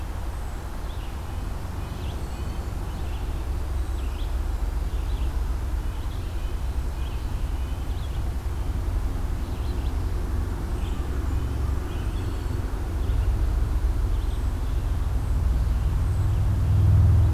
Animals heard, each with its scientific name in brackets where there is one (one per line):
Red-eyed Vireo (Vireo olivaceus)
American Crow (Corvus brachyrhynchos)
Red-breasted Nuthatch (Sitta canadensis)
Black-throated Green Warbler (Setophaga virens)